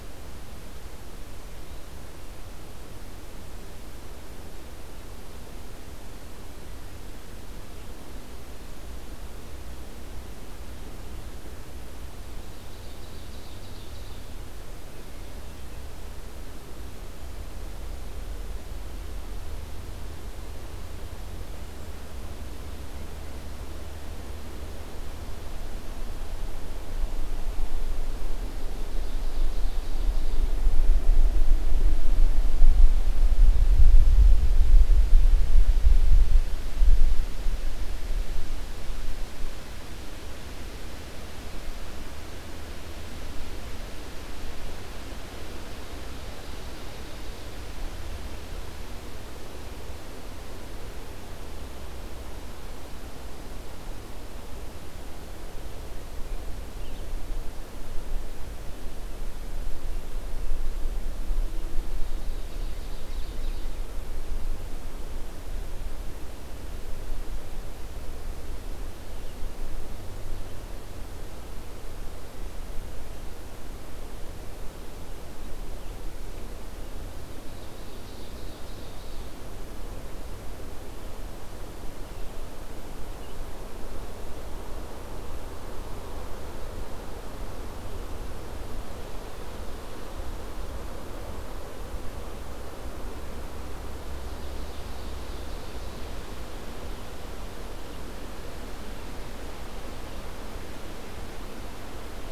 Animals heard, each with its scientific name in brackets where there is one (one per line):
Red-eyed Vireo (Vireo olivaceus)
Ovenbird (Seiurus aurocapilla)